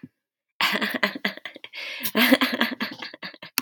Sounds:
Laughter